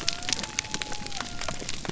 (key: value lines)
label: biophony
recorder: SoundTrap 300